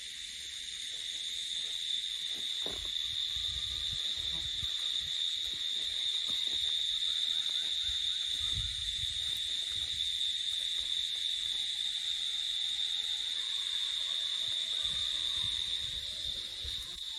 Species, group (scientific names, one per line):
Chlorocysta vitripennis
Cicadidae